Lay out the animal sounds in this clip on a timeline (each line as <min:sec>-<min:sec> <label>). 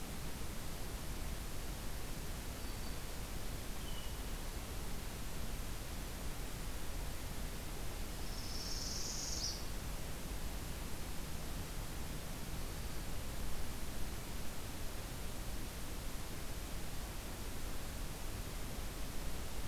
0:02.5-0:03.0 Black-throated Green Warbler (Setophaga virens)
0:03.7-0:04.2 Hermit Thrush (Catharus guttatus)
0:08.1-0:09.7 Northern Parula (Setophaga americana)